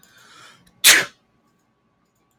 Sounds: Sneeze